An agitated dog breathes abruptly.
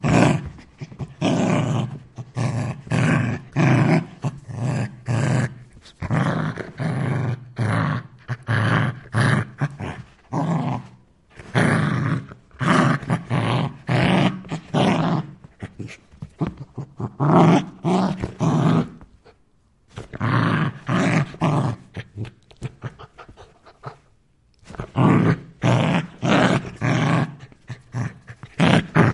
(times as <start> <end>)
0.8 1.1, 15.6 17.2, 19.9 20.1, 22.0 23.9, 27.7 28.5